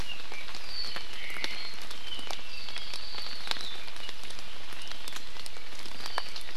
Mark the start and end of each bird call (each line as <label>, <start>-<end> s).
Apapane (Himatione sanguinea), 0.0-3.8 s